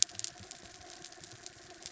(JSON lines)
{"label": "anthrophony, mechanical", "recorder": "SoundTrap 300"}